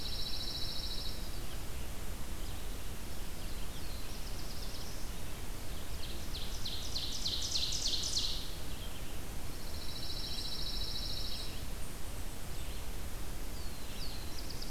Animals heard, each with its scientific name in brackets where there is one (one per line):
Black-throated Blue Warbler (Setophaga caerulescens)
Ovenbird (Seiurus aurocapilla)
Red-eyed Vireo (Vireo olivaceus)
Pine Warbler (Setophaga pinus)